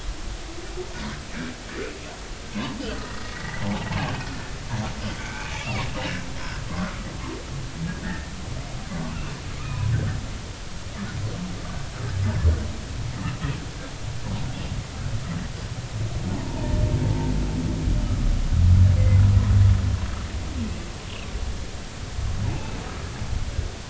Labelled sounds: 3.3	3.9	humpback whale, 0.80 to 2.0 kHz
5.2	5.9	humpback whale, 0.93 to 2.6 kHz
6.8	7.1	humpback whale, 1.2 to 1.5 kHz
8.0	8.3	humpback whale, 1.6 to 2.0 kHz
9.6	9.8	humpback whale, 1.2 to 1.3 kHz
16.3	16.8	humpback whale, 0.80 to 1.0 kHz

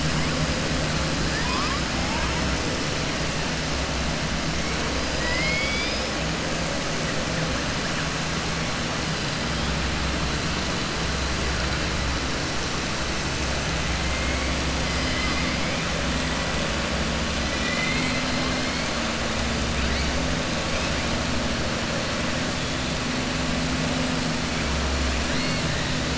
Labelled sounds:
5.1	6.1	killer whale, southern resident, 1.0 to 5.7 kHz
15.0	15.5	killer whale, southern resident, 1.1 to 3.1 kHz
17.5	18.2	killer whale, southern resident, 1.9 to 4.3 kHz

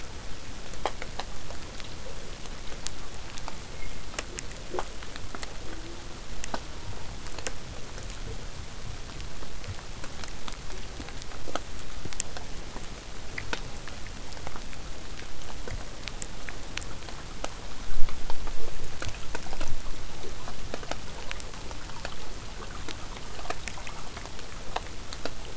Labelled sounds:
5.6	6.2	killer whale, southern resident, J pod, call S04, 0.15 to 1.5 kHz
6.6	7.2	killer whale, southern resident, J pod, call S04, 0.23 to 1.1 kHz

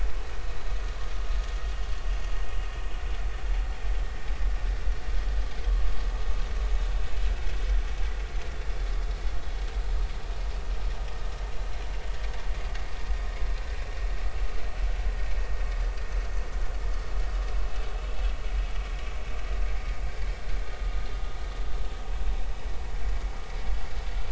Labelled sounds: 22.1	22.3	vessel noise, 2.4 to 2.7 kHz

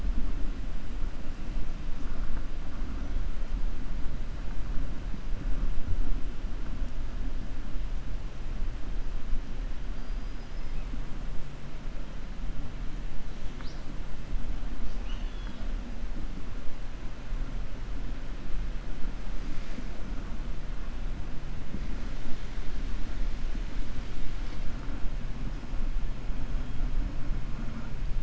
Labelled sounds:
9.9	10.7	killer whale, 4.7 to 5.2 kHz

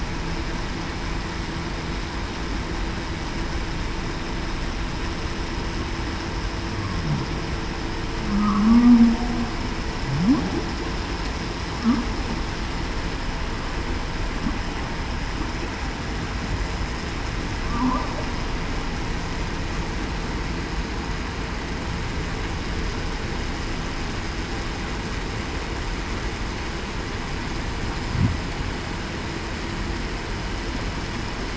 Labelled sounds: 8.2	9.1	humpback whale, 0.19 to 0.28 kHz

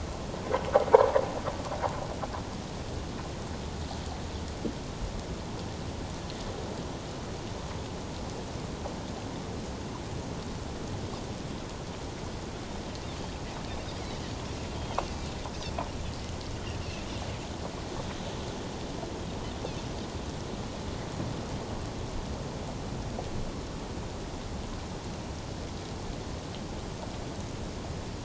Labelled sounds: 16.8	17.1	Pacific white-sided dolphin, 2.4 to 2.8 kHz

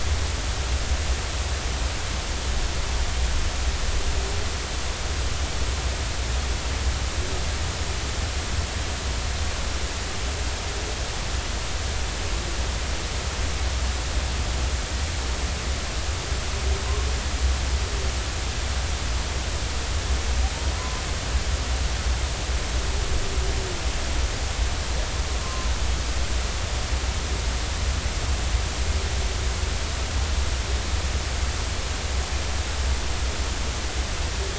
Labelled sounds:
25.4	25.7	humpback whale, 0.99 to 1.1 kHz

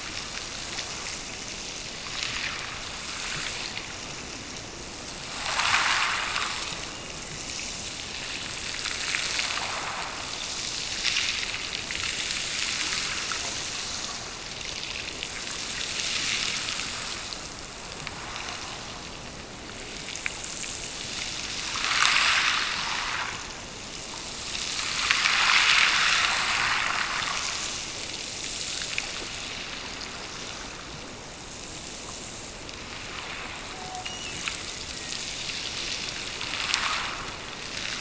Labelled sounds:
34.0	35.4	killer whale, Bigg's (transient), Gulf of Alaska transient, 1.7 to 3.0 kHz

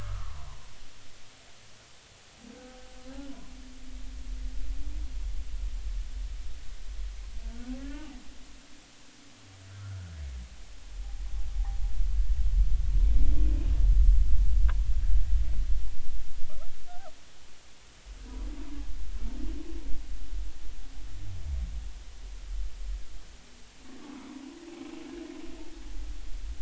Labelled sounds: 7.8	8.1	humpback whale, 1.3 to 1.9 kHz
9.7	10.0	humpback whale, 1.2 to 1.6 kHz
16.9	17.1	humpback whale, 1.2 to 1.6 kHz

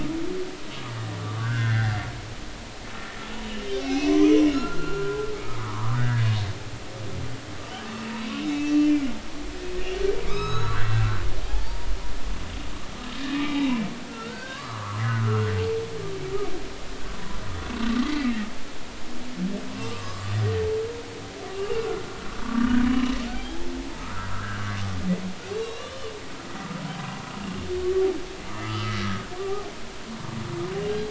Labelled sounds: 0.1	2.0	humpback whale, 1.3 to 3.4 kHz
3.8	6.2	humpback whale, 0.93 to 2.9 kHz
8.5	8.9	humpback whale, 2.6 to 2.7 kHz
10.3	11.9	humpback whale, 0.80 to 6.7 kHz
13.6	15.5	humpback whale, 0.99 to 2.4 kHz
18.0	18.5	humpback whale, 1.7 to 2.1 kHz
19.7	20.3	humpback whale, 0.96 to 4.7 kHz
21.8	22.9	humpback whale, 1.1 to 1.7 kHz
23.3	23.7	humpback whale, 0.80 to 3.4 kHz
24.0	24.6	humpback whale, 1.1 to 1.8 kHz
25.5	26.1	humpback whale, 1.1 to 4.0 kHz
28.5	29.0	humpback whale, 0.93 to 3.1 kHz
29.4	29.7	humpback whale, 0.80 to 1.3 kHz

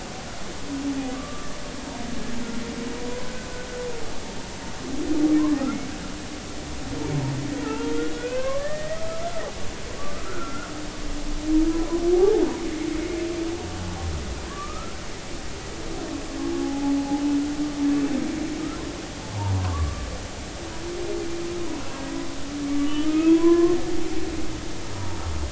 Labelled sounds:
1.1	1.5	humpback whale, 1.1 to 1.3 kHz
3.0	3.3	humpback whale, 0.93 to 1.1 kHz
7.6	9.0	humpback whale, 0.83 to 2.8 kHz
10.0	10.7	humpback whale, 1.1 to 1.5 kHz
12.2	12.4	humpback whale, 0.80 to 0.90 kHz
14.5	15.0	humpback whale, 0.99 to 1.4 kHz
16.6	17.0	humpback whale, 0.80 to 0.90 kHz
19.3	19.6	humpback whale, 0.86 to 1.1 kHz
20.7	22.3	humpback whale, 1.0 to 2.0 kHz
22.7	23.8	humpback whale, 0.96 to 3.1 kHz
24.9	25.2	humpback whale, 0.86 to 0.99 kHz

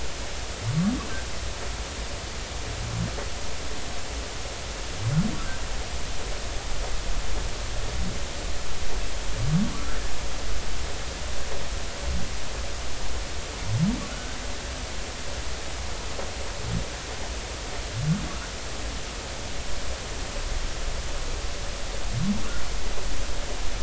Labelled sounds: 14.1	14.4	humpback whale, 1.3 to 1.6 kHz

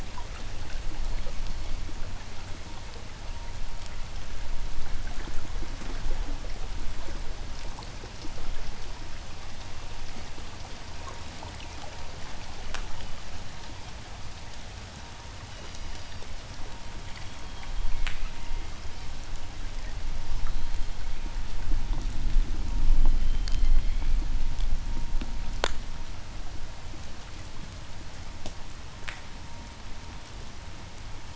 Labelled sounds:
0.8	1.9	killer whale, southern resident, J pod, 4.0 to 4.5 kHz
15.2	16.7	killer whale, southern resident, J pod, 2.5 to 6.3 kHz
17.4	19.1	killer whale, southern resident, J pod, 1.4 to 5.2 kHz
20.2	21.5	killer whale, southern resident, J pod, 1.5 to 4.7 kHz
22.9	24.4	killer whale, southern resident, J pod, 1.5 to 4.8 kHz

